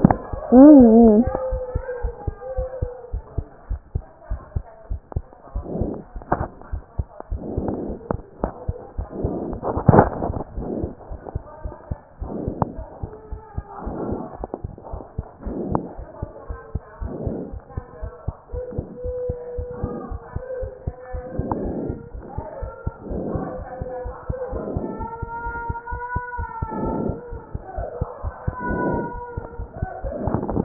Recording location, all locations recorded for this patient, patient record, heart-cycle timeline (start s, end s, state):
pulmonary valve (PV)
pulmonary valve (PV)+tricuspid valve (TV)+mitral valve (MV)
#Age: Child
#Sex: Female
#Height: 134.0 cm
#Weight: 29.6 kg
#Pregnancy status: False
#Murmur: Absent
#Murmur locations: nan
#Most audible location: nan
#Systolic murmur timing: nan
#Systolic murmur shape: nan
#Systolic murmur grading: nan
#Systolic murmur pitch: nan
#Systolic murmur quality: nan
#Diastolic murmur timing: nan
#Diastolic murmur shape: nan
#Diastolic murmur grading: nan
#Diastolic murmur pitch: nan
#Diastolic murmur quality: nan
#Outcome: Abnormal
#Campaign: 2014 screening campaign
0.00	1.50	unannotated
1.50	1.60	S1
1.60	1.74	systole
1.74	1.82	S2
1.82	2.02	diastole
2.02	2.14	S1
2.14	2.26	systole
2.26	2.34	S2
2.34	2.56	diastole
2.56	2.68	S1
2.68	2.80	systole
2.80	2.90	S2
2.90	3.12	diastole
3.12	3.22	S1
3.22	3.36	systole
3.36	3.46	S2
3.46	3.68	diastole
3.68	3.80	S1
3.80	3.94	systole
3.94	4.02	S2
4.02	4.28	diastole
4.28	4.40	S1
4.40	4.54	systole
4.54	4.64	S2
4.64	4.90	diastole
4.90	5.00	S1
5.00	5.14	systole
5.14	5.22	S2
5.22	5.54	diastole
5.54	30.64	unannotated